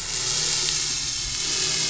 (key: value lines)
label: anthrophony, boat engine
recorder: SoundTrap 500